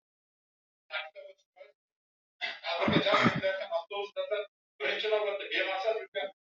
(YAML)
expert_labels:
- quality: no cough present
  dyspnea: false
  wheezing: false
  stridor: false
  choking: false
  congestion: false
  nothing: true
  diagnosis: lower respiratory tract infection
  severity: severe
age: 23
gender: female
respiratory_condition: false
fever_muscle_pain: false
status: COVID-19